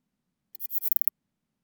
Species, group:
Platycleis escalerai, Orthoptera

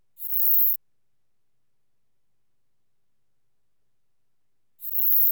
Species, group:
Eupholidoptera forcipata, Orthoptera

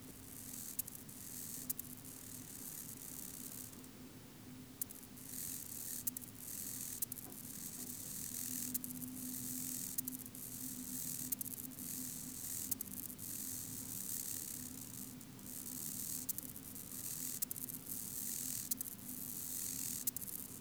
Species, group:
Chorthippus albomarginatus, Orthoptera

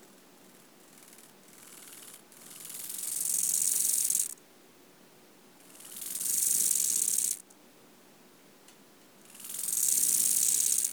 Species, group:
Chorthippus eisentrauti, Orthoptera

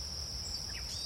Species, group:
Anaxipha vernalis, Orthoptera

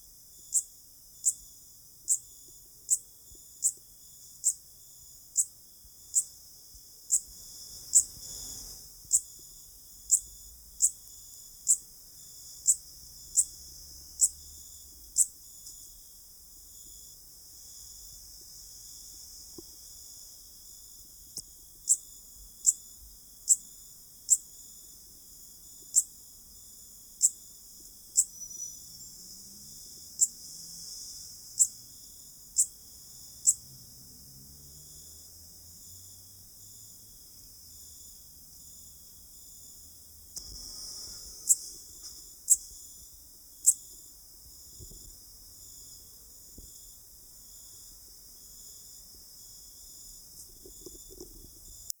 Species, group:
Eupholidoptera schmidti, Orthoptera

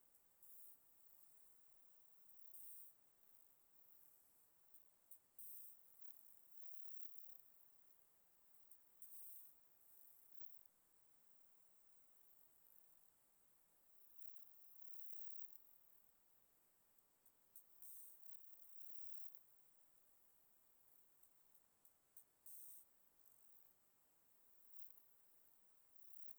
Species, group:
Platycleis iberica, Orthoptera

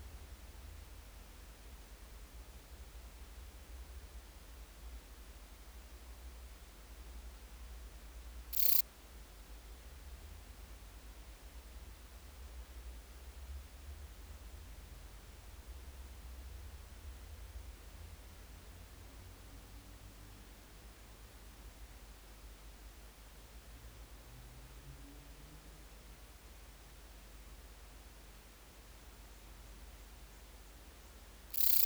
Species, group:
Rhacocleis annulata, Orthoptera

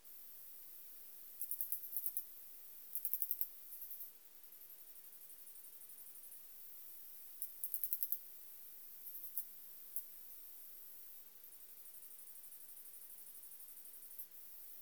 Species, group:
Ducetia japonica, Orthoptera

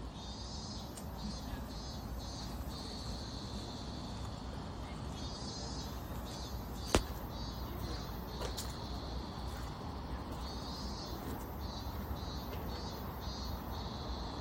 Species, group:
Hyalessa maculaticollis, Cicadidae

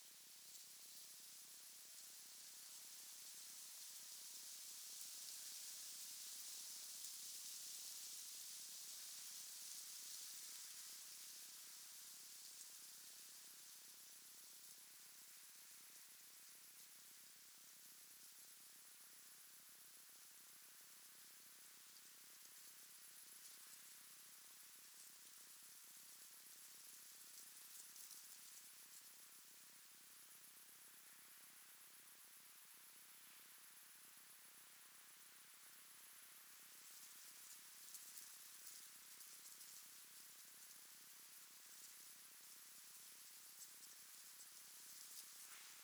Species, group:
Leptophyes punctatissima, Orthoptera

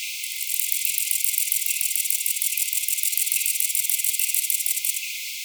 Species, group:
Conocephalus fuscus, Orthoptera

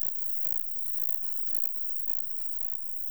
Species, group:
Metrioptera prenjica, Orthoptera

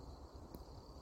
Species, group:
Nemobius sylvestris, Orthoptera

